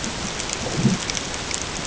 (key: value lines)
label: ambient
recorder: HydroMoth